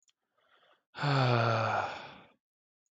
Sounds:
Sigh